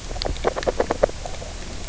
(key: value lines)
label: biophony, knock croak
recorder: SoundTrap 300